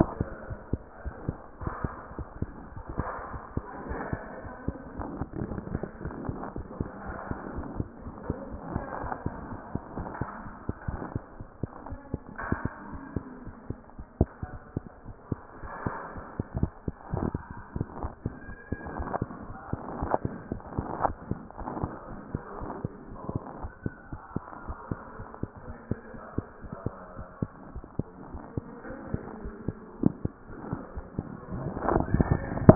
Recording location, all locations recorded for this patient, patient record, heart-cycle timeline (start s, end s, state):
aortic valve (AV)
aortic valve (AV)+mitral valve (MV)
#Age: Infant
#Sex: Male
#Height: 54.0 cm
#Weight: nan
#Pregnancy status: False
#Murmur: Absent
#Murmur locations: nan
#Most audible location: nan
#Systolic murmur timing: nan
#Systolic murmur shape: nan
#Systolic murmur grading: nan
#Systolic murmur pitch: nan
#Systolic murmur quality: nan
#Diastolic murmur timing: nan
#Diastolic murmur shape: nan
#Diastolic murmur grading: nan
#Diastolic murmur pitch: nan
#Diastolic murmur quality: nan
#Outcome: Normal
#Campaign: 2014 screening campaign
0.00	0.12	S1
0.12	0.18	systole
0.18	0.30	S2
0.30	0.50	diastole
0.50	0.60	S1
0.60	0.68	systole
0.68	0.82	S2
0.82	1.04	diastole
1.04	1.16	S1
1.16	1.26	systole
1.26	1.38	S2
1.38	1.62	diastole
1.62	1.76	S1
1.76	1.82	systole
1.82	1.92	S2
1.92	2.18	diastole
2.18	2.26	S1
2.26	2.36	systole
2.36	2.50	S2
2.50	2.70	diastole
2.70	2.84	S1
2.84	2.94	systole
2.94	3.08	S2
3.08	3.30	diastole
3.30	3.42	S1
3.42	3.52	systole
3.52	3.66	S2
3.66	3.88	diastole
3.88	4.02	S1
4.02	4.10	systole
4.10	4.22	S2
4.22	4.44	diastole
4.44	4.54	S1
4.54	4.66	systole
4.66	4.76	S2
4.76	4.96	diastole
4.96	5.10	S1
5.10	5.18	systole
5.18	5.30	S2
5.30	5.48	diastole
5.48	5.62	S1
5.62	5.68	systole
5.68	5.82	S2
5.82	6.02	diastole
6.02	6.16	S1
6.16	6.26	systole
6.26	6.40	S2
6.40	6.56	diastole
6.56	6.68	S1
6.68	6.78	systole
6.78	6.90	S2
6.90	7.06	diastole
7.06	7.16	S1
7.16	7.26	systole
7.26	7.38	S2
7.38	7.56	diastole
7.56	7.70	S1
7.70	7.78	systole
7.78	7.88	S2
7.88	8.06	diastole
8.06	8.16	S1
8.16	8.24	systole
8.24	8.34	S2
8.34	8.52	diastole
8.52	8.62	S1
8.62	8.70	systole
8.70	8.84	S2
8.84	9.02	diastole
9.02	9.16	S1
9.16	9.24	systole
9.24	9.34	S2
9.34	9.50	diastole
9.50	9.60	S1
9.60	9.70	systole
9.70	9.82	S2
9.82	9.98	diastole
9.98	10.12	S1
10.12	10.20	systole
10.20	10.28	S2
10.28	10.44	diastole
10.44	10.54	S1
10.54	10.64	systole
10.64	10.74	S2
10.74	10.92	diastole
10.92	11.04	S1
11.04	11.14	systole
11.14	11.22	S2
11.22	11.40	diastole
11.40	11.50	S1
11.50	11.62	systole
11.62	11.68	S2
11.68	11.90	diastole
11.90	12.00	S1
12.00	12.12	systole
12.12	12.20	S2
12.20	12.42	diastole
12.42	12.58	S1
12.58	12.64	systole
12.64	12.70	S2
12.70	12.90	diastole
12.90	13.02	S1
13.02	13.12	systole
13.12	13.24	S2
13.24	13.46	diastole
13.46	13.54	S1
13.54	13.66	systole
13.66	13.78	S2
13.78	14.00	diastole
14.00	14.08	S1
14.08	14.20	systole
14.20	14.34	S2
14.34	14.52	diastole
14.52	14.60	S1
14.60	14.72	systole
14.72	14.86	S2
14.86	15.08	diastole
15.08	15.14	S1
15.14	15.28	systole
15.28	15.38	S2
15.38	15.60	diastole
15.60	15.70	S1
15.70	15.82	systole
15.82	15.94	S2
15.94	16.14	diastole
16.14	16.24	S1
16.24	16.28	systole
16.28	16.34	S2
16.34	16.56	diastole
16.56	16.72	S1
16.72	16.84	systole
16.84	16.94	S2
16.94	17.12	diastole
17.12	17.28	S1
17.28	17.44	systole
17.44	17.56	S2
17.56	17.76	diastole
17.76	17.88	S1
17.88	17.96	systole
17.96	18.10	S2
18.10	18.26	diastole
18.26	18.36	S1
18.36	18.48	systole
18.48	18.58	S2
18.58	18.82	diastole
18.82	18.94	S1
18.94	18.98	systole
18.98	19.12	S2
19.12	19.30	diastole
19.30	19.38	S1
19.38	19.48	systole
19.48	19.56	S2
19.56	19.72	diastole
19.72	19.84	S1
19.84	19.96	systole
19.96	20.12	S2
20.12	20.32	diastole
20.32	20.44	S1
20.44	20.50	systole
20.50	20.60	S2
20.60	20.76	diastole
20.76	20.90	S1
20.90	21.04	systole
21.04	21.16	S2
21.16	21.32	diastole
21.32	21.42	S1
21.42	21.46	systole
21.46	21.50	S2
21.50	21.66	diastole
21.66	21.76	S1
21.76	21.78	systole
21.78	21.92	S2
21.92	22.10	diastole
22.10	22.20	S1
22.20	22.30	systole
22.30	22.42	S2
22.42	22.60	diastole
22.60	22.72	S1
22.72	22.82	systole
22.82	22.94	S2
22.94	23.12	diastole
23.12	23.20	S1
23.20	23.30	systole
23.30	23.42	S2
23.42	23.60	diastole
23.60	23.70	S1
23.70	23.82	systole
23.82	23.92	S2
23.92	24.12	diastole
24.12	24.20	S1
24.20	24.32	systole
24.32	24.42	S2
24.42	24.66	diastole
24.66	24.76	S1
24.76	24.90	systole
24.90	24.98	S2
24.98	25.20	diastole
25.20	25.26	S1
25.26	25.38	systole
25.38	25.50	S2
25.50	25.68	diastole
25.68	25.76	S1
25.76	25.90	systole
25.90	25.98	S2
25.98	26.16	diastole
26.16	26.24	S1
26.24	26.34	systole
26.34	26.48	S2
26.48	26.64	diastole
26.64	26.72	S1
26.72	26.82	systole
26.82	26.96	S2
26.96	27.18	diastole
27.18	27.26	S1
27.26	27.38	systole
27.38	27.52	S2
27.52	27.74	diastole
27.74	27.84	S1
27.84	27.94	systole
27.94	28.06	S2
28.06	28.30	diastole
28.30	28.42	S1
28.42	28.54	systole
28.54	28.64	S2
28.64	28.88	diastole
28.88	29.00	S1
29.00	29.10	systole
29.10	29.22	S2
29.22	29.42	diastole
29.42	29.56	S1
29.56	29.66	systole
29.66	29.78	S2
29.78	30.00	diastole
30.00	30.14	S1
30.14	30.24	systole
30.24	30.36	S2
30.36	30.62	diastole
30.62	30.80	S1
30.80	30.94	systole
30.94	31.04	S2
31.04	31.26	diastole
31.26	31.38	S1
31.38	31.50	systole
31.50	31.66	S2
31.66	31.88	diastole
31.88	32.06	S1
32.06	32.12	systole
32.12	32.28	S2
32.28	32.46	diastole
32.46	32.60	S1
32.60	32.62	systole
32.62	32.75	S2